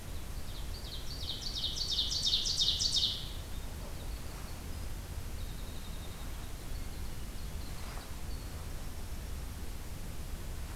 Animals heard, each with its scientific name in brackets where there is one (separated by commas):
Winter Wren (Troglodytes hiemalis), Ovenbird (Seiurus aurocapilla)